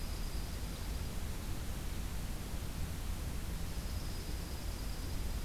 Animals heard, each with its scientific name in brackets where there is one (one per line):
Dark-eyed Junco (Junco hyemalis)